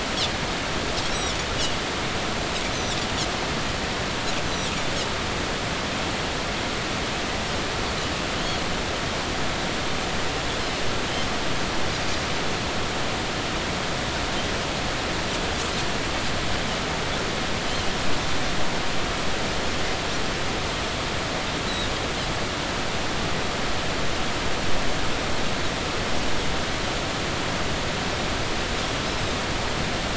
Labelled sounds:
8.3	8.6	Pacific white-sided dolphin, 2.9 to 3.4 kHz
11.9	12.2	Pacific white-sided dolphin, 4.8 to 5.1 kHz

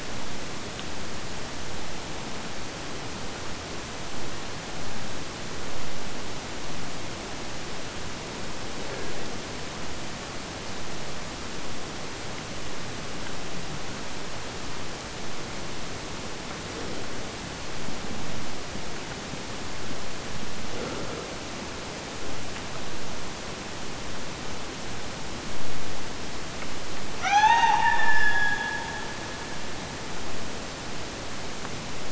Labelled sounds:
27.1	29.7	killer whale, Bigg's (transient), Gulf of Alaska transient, 0.63 to 6.9 kHz

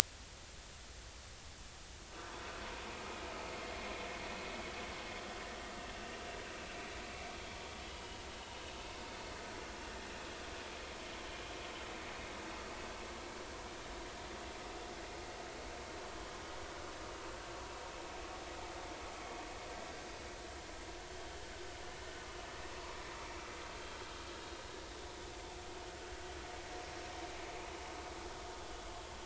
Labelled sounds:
7.9	8.2	vessel noise, 2.8 to 3.0 kHz

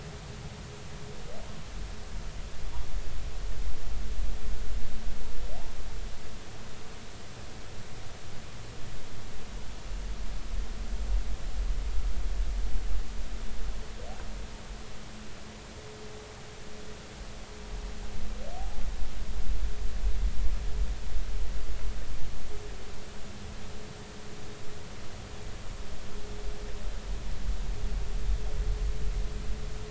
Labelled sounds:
18.6	18.8	humpback whale, 0.80 to 0.86 kHz

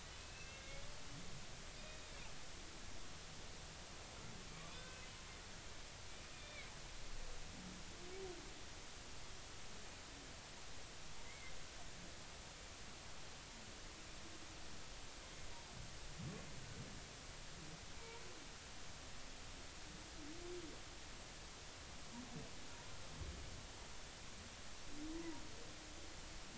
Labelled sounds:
0.1	0.8	humpback whale, 2.1 to 2.8 kHz
1.8	2.0	humpback whale, 2.4 to 2.5 kHz
4.8	5.0	humpback whale, 1.5 to 1.6 kHz
6.3	6.7	humpback whale, 2.0 to 2.5 kHz
11.2	11.5	humpback whale, 2.0 to 2.3 kHz
18.0	18.2	humpback whale, 0.86 to 1.0 kHz
25.2	25.4	humpback whale, 0.90 to 1.1 kHz

